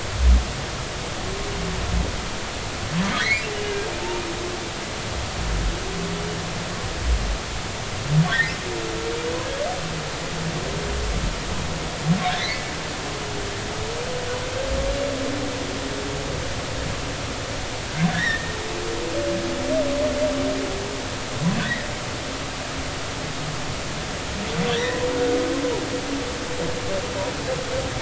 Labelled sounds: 3.2	3.5	humpback whale, 1.8 to 2.5 kHz
8.3	8.6	humpback whale, 1.7 to 2.2 kHz
12.4	12.7	humpback whale, 1.9 to 2.3 kHz
18.1	18.5	humpback whale, 1.6 to 2.1 kHz
21.6	21.9	humpback whale, 1.7 to 2.1 kHz
24.8	25.0	humpback whale, 1.8 to 2.0 kHz

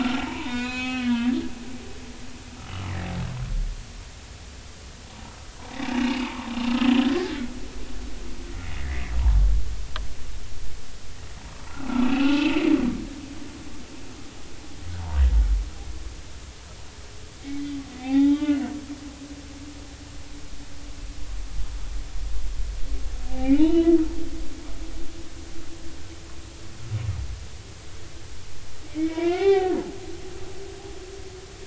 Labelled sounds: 0.0	1.4	humpback whale, 0.86 to 6.7 kHz
2.6	2.9	humpback whale, 2.8 to 3.0 kHz
5.9	7.5	humpback whale, 1.4 to 3.3 kHz
11.6	12.6	humpback whale, 0.80 to 2.9 kHz
17.9	18.6	humpback whale, 0.80 to 3.9 kHz
23.3	23.9	humpback whale, 0.80 to 3.1 kHz
28.9	29.8	humpback whale, 0.80 to 4.0 kHz

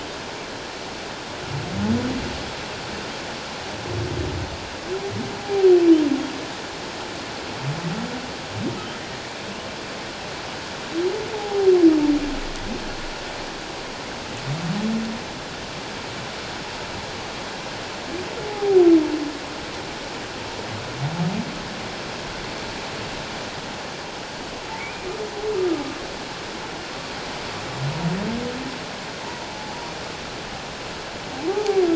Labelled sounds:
5.4	5.7	humpback whale, 0.78 to 0.84 kHz
11.3	11.7	humpback whale, 0.78 to 0.91 kHz
18.5	18.8	humpback whale, 0.78 to 0.88 kHz
24.8	25.1	humpback whale, 2.2 to 2.5 kHz
29.2	29.5	humpback whale, 0.84 to 1.0 kHz
31.5	31.8	humpback whale, 0.78 to 0.91 kHz

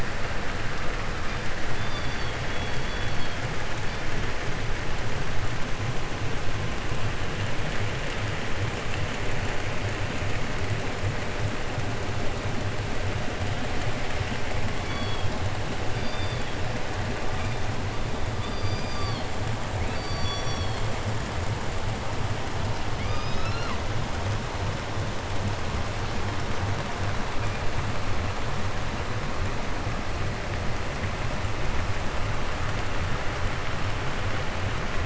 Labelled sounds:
1.2	3.5	killer whale, 1.6 to 6.1 kHz
3.8	4.1	killer whale, 2.1 to 5.1 kHz
14.7	15.4	killer whale, southern resident, call S16, 0.85 to 6.1 kHz
15.8	16.6	killer whale, southern resident, call S16, 1.4 to 5.2 kHz
17.3	17.6	killer whale, 1.8 to 5.1 kHz
18.3	19.3	killer whale, southern resident, 0.64 to 6.2 kHz
19.7	21.0	killer whale, southern resident, call S16, 0.77 to 6.5 kHz
22.9	23.9	killer whale, 0.56 to 7.5 kHz

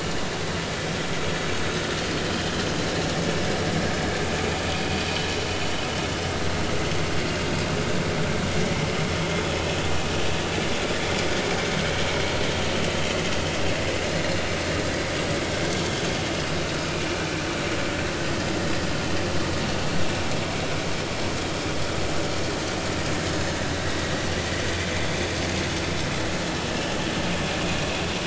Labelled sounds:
26.7	26.9	vessel noise, 2.8 to 3.0 kHz

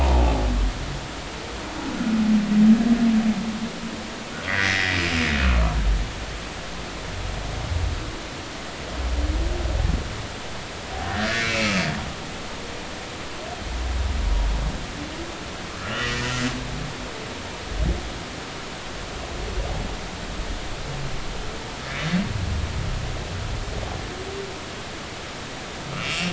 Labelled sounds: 4.5	5.0	humpback whale, 1.7 to 2.2 kHz
11.0	11.6	humpback whale, 1.3 to 2.4 kHz
15.8	16.5	humpback whale, 1.2 to 3.1 kHz
26.0	26.3	humpback whale, 2.6 to 2.9 kHz

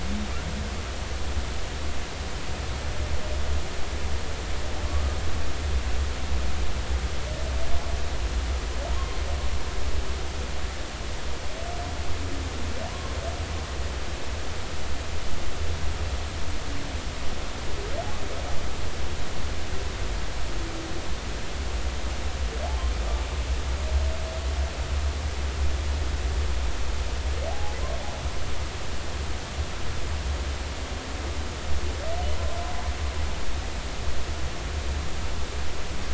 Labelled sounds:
9.0	9.2	humpback whale, 1.0 to 1.1 kHz
12.9	13.1	humpback whale, 0.86 to 1.1 kHz
27.5	27.8	humpback whale, 0.80 to 0.90 kHz

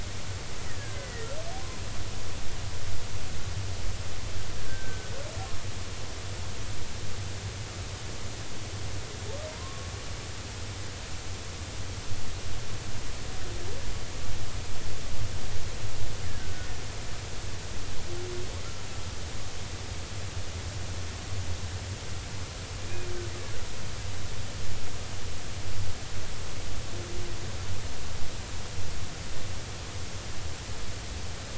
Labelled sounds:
0.8	1.3	killer whale, Bigg's (transient), 1.5 to 2.1 kHz
4.6	5.1	killer whale, Bigg's (transient), 1.5 to 1.7 kHz
9.5	9.9	humpback whale, 0.93 to 1.1 kHz
16.4	16.7	killer whale, Bigg's (transient), 1.4 to 1.6 kHz

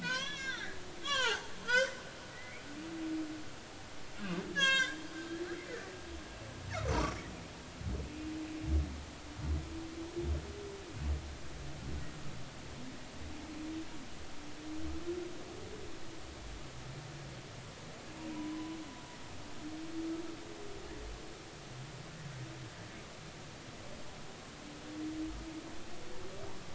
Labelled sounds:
0.0	2.7	humpback whale, 0.80 to 6.0 kHz
4.5	5.0	humpback whale, 0.99 to 7.8 kHz
18.3	18.8	humpback whale, 0.93 to 1.1 kHz

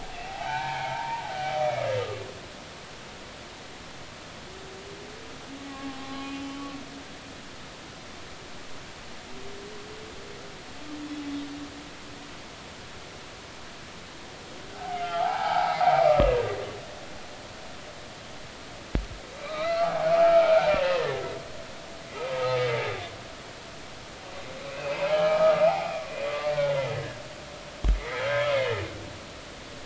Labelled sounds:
0.3	1.2	humpback whale, 0.80 to 2.5 kHz
5.7	6.7	humpback whale, 0.80 to 4.2 kHz
14.7	15.8	humpback whale, 0.80 to 2.3 kHz
19.3	21.2	humpback whale, 0.80 to 4.1 kHz
24.7	25.9	humpback whale, 0.80 to 3.2 kHz
26.2	26.8	humpback whale, 1.1 to 2.1 kHz
28.0	28.2	humpback whale, 1.8 to 2.2 kHz

